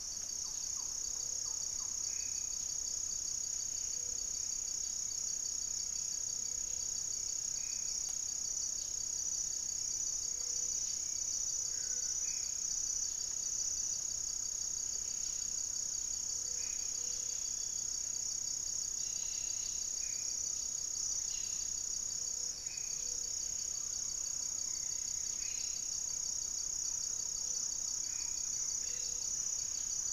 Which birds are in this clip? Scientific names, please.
Campylorhynchus turdinus, Formicarius analis, Leptotila rufaxilla, unidentified bird, Turdus hauxwelli, Brotogeris cyanoptera, Amazona farinosa